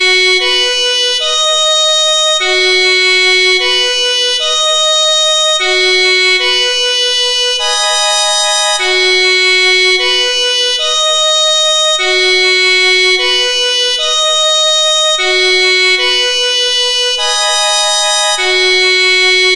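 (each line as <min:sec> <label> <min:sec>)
0:00.0 A loud, continuous melody played by several unidentified musical instruments. 0:19.6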